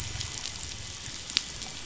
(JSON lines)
{"label": "biophony", "recorder": "SoundTrap 500"}
{"label": "anthrophony, boat engine", "recorder": "SoundTrap 500"}